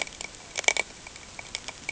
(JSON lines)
{"label": "ambient", "recorder": "HydroMoth"}